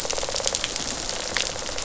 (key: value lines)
label: biophony, rattle response
recorder: SoundTrap 500